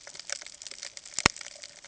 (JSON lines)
{"label": "ambient", "recorder": "HydroMoth"}